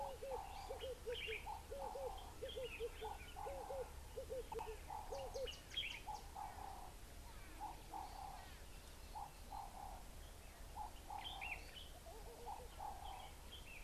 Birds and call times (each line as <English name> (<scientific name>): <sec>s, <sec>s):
Red-eyed Dove (Streptopelia semitorquata): 2.6s
Ring-necked Dove (Streptopelia capicola): 6.5s, 11.0s
Laughing Dove (Streptopelia senegalensis): 12.3s